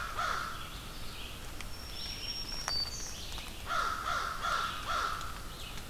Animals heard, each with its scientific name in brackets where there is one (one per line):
Black-throated Green Warbler (Setophaga virens)
Red-eyed Vireo (Vireo olivaceus)
American Crow (Corvus brachyrhynchos)